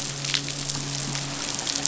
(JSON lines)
{"label": "biophony, midshipman", "recorder": "SoundTrap 500"}